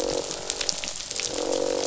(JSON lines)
{"label": "biophony, croak", "recorder": "SoundTrap 500"}